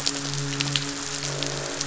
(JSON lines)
{"label": "biophony, midshipman", "recorder": "SoundTrap 500"}
{"label": "biophony, croak", "recorder": "SoundTrap 500"}